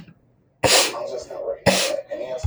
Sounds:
Sniff